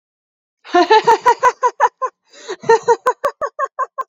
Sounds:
Laughter